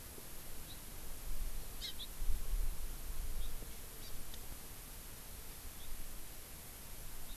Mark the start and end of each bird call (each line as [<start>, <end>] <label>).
[0.68, 0.78] Hawaii Amakihi (Chlorodrepanis virens)
[1.78, 2.08] Hawaii Amakihi (Chlorodrepanis virens)
[3.38, 3.48] Hawaii Amakihi (Chlorodrepanis virens)
[3.98, 4.08] Hawaii Amakihi (Chlorodrepanis virens)